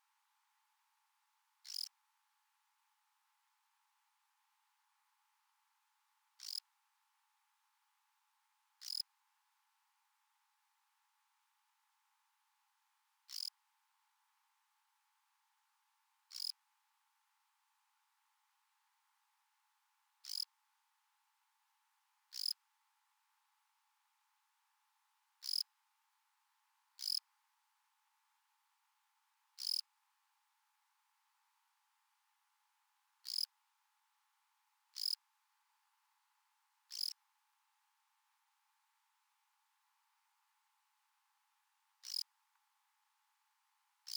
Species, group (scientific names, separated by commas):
Gryllus assimilis, Orthoptera